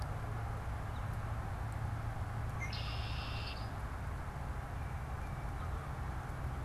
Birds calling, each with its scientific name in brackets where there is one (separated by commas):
Tufted Titmouse (Baeolophus bicolor), Red-winged Blackbird (Agelaius phoeniceus)